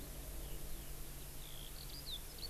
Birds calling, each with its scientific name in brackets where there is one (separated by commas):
Eurasian Skylark (Alauda arvensis)